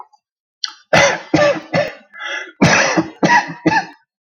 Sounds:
Cough